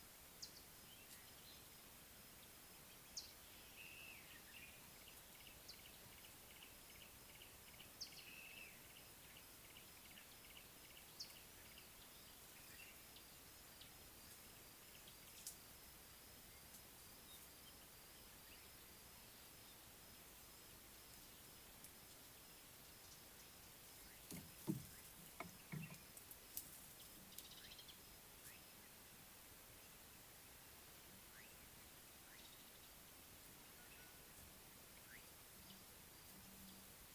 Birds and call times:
Yellow-breasted Apalis (Apalis flavida): 0:06.6
Mariqua Sunbird (Cinnyris mariquensis): 0:27.5

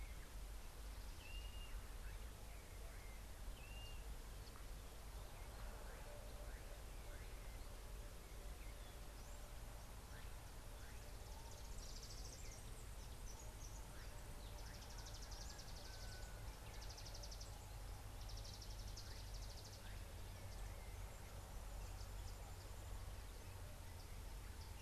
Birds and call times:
Blue-naped Mousebird (Urocolius macrourus): 0:01.4
Mariqua Sunbird (Cinnyris mariquensis): 0:17.2

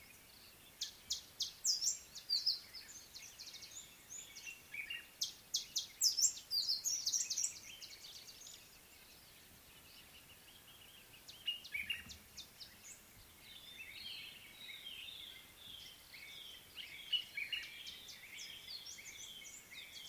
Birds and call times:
Common Bulbul (Pycnonotus barbatus): 0:04.8, 0:11.9
Amethyst Sunbird (Chalcomitra amethystina): 0:06.2
White-browed Robin-Chat (Cossypha heuglini): 0:15.1

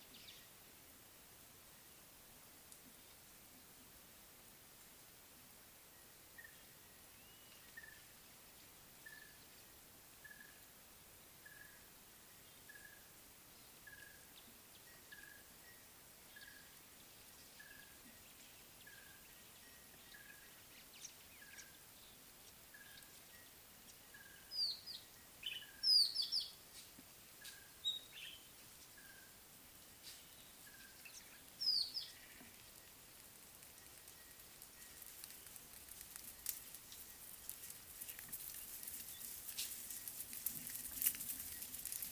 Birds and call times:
Red-fronted Tinkerbird (Pogoniulus pusillus): 0:06.4, 0:07.8, 0:09.1, 0:10.3, 0:11.6, 0:12.8, 0:14.0, 0:15.2, 0:16.5, 0:17.7, 0:19.0
Mocking Cliff-Chat (Thamnolaea cinnamomeiventris): 0:24.6, 0:26.1, 0:27.9, 0:31.7

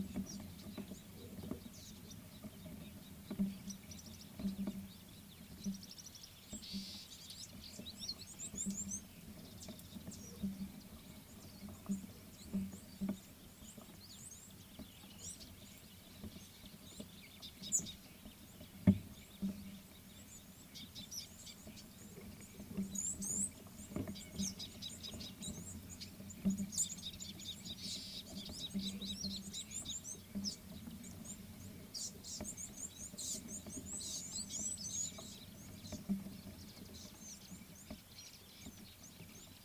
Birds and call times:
Red-cheeked Cordonbleu (Uraeginthus bengalus): 0:08.7, 0:23.3, 0:34.7
Scarlet-chested Sunbird (Chalcomitra senegalensis): 0:17.7, 0:27.5

